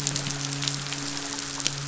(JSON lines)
{"label": "biophony, midshipman", "recorder": "SoundTrap 500"}